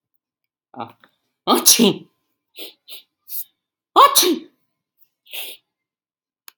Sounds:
Sneeze